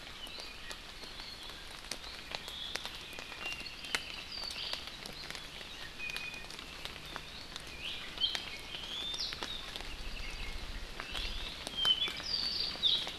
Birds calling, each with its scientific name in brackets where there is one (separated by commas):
Omao (Myadestes obscurus), Iiwi (Drepanis coccinea), Apapane (Himatione sanguinea)